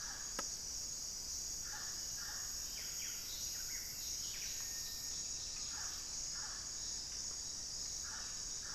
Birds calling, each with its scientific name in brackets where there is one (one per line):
Pygmy Antwren (Myrmotherula brachyura)
Buff-breasted Wren (Cantorchilus leucotis)